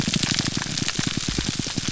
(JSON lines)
{"label": "biophony, pulse", "recorder": "SoundTrap 300"}